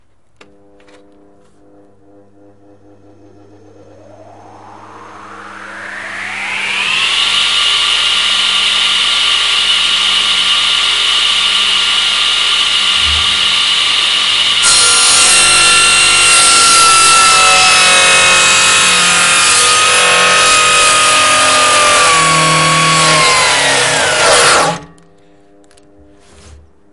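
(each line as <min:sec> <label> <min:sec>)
0:00.2 A button is being clicked. 0:00.7
0:00.8 The sound of a circular table saw starting up. 0:14.7
0:14.6 A table saw cutting through wood. 0:25.0
0:25.4 Muffled microphone handling noise. 0:26.9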